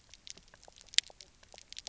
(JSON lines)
{"label": "biophony, knock croak", "recorder": "SoundTrap 300"}